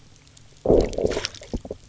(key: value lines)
label: biophony, low growl
recorder: SoundTrap 300